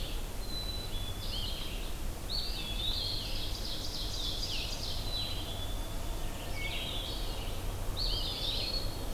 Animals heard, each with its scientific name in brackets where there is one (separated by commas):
Eastern Wood-Pewee (Contopus virens), Ovenbird (Seiurus aurocapilla), Black-capped Chickadee (Poecile atricapillus), Blue-headed Vireo (Vireo solitarius)